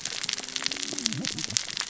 {"label": "biophony, cascading saw", "recorder": "SoundTrap 600 or HydroMoth"}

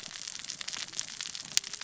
{"label": "biophony, cascading saw", "recorder": "SoundTrap 600 or HydroMoth"}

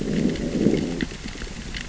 {"label": "biophony, growl", "recorder": "SoundTrap 600 or HydroMoth"}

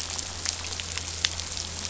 {"label": "anthrophony, boat engine", "recorder": "SoundTrap 500"}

